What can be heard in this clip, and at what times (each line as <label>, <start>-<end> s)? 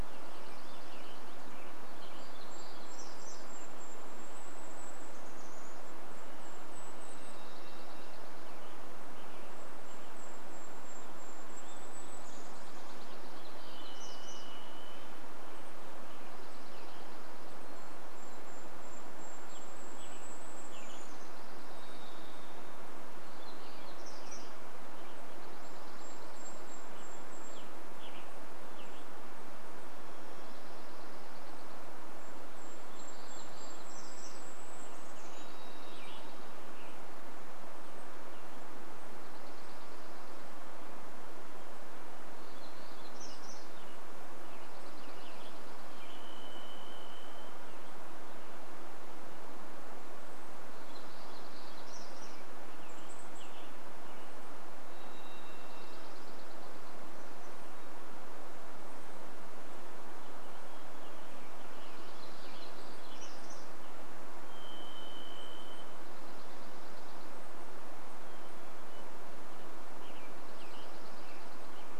Dark-eyed Junco song, 0-2 s
Western Tanager song, 0-2 s
warbler song, 0-4 s
Golden-crowned Kinglet song, 2-14 s
Varied Thrush song, 6-8 s
Dark-eyed Junco song, 6-10 s
Western Tanager song, 8-10 s
warbler song, 8-16 s
unidentified sound, 10-12 s
Dark-eyed Junco song, 12-14 s
Varied Thrush song, 12-16 s
Dark-eyed Junco song, 16-18 s
Western Tanager song, 16-18 s
Golden-crowned Kinglet song, 16-22 s
Evening Grosbeak call, 18-20 s
Western Tanager song, 20-22 s
Varied Thrush song, 20-24 s
Dark-eyed Junco song, 20-28 s
warbler song, 22-26 s
Golden-crowned Kinglet call, 24-26 s
Western Tanager song, 24-30 s
Golden-crowned Kinglet song, 26-28 s
Golden-crowned Kinglet call, 28-30 s
Dark-eyed Junco song, 30-32 s
Hermit Thrush song, 30-32 s
Golden-crowned Kinglet song, 32-36 s
warbler song, 32-36 s
Varied Thrush song, 34-38 s
Western Tanager song, 34-40 s
Dark-eyed Junco song, 34-42 s
warbler song, 42-44 s
Western Tanager song, 42-48 s
Dark-eyed Junco song, 44-46 s
Varied Thrush song, 46-48 s
warbler song, 50-54 s
Western Tanager song, 52-56 s
Varied Thrush song, 54-56 s
Dark-eyed Junco song, 54-58 s
Golden-crowned Kinglet call, 58-60 s
Dark-eyed Junco song, 60-64 s
Western Tanager song, 60-64 s
warbler song, 62-64 s
Varied Thrush song, 64-66 s
Dark-eyed Junco song, 66-68 s
Hermit Thrush song, 68-70 s
Western Tanager song, 68-72 s
Dark-eyed Junco song, 70-72 s